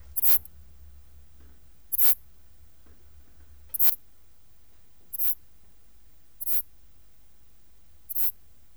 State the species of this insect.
Ephippiger diurnus